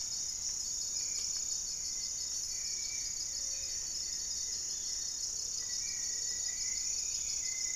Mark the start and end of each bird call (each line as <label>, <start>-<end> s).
Gray-fronted Dove (Leptotila rufaxilla), 0.0-7.8 s
Hauxwell's Thrush (Turdus hauxwelli), 0.0-7.8 s
Spot-winged Antshrike (Pygiptila stellaris), 0.0-7.8 s
Goeldi's Antbird (Akletos goeldii), 1.8-5.3 s
Rufous-fronted Antthrush (Formicarius rufifrons), 5.5-7.8 s